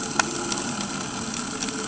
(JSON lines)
{"label": "anthrophony, boat engine", "recorder": "HydroMoth"}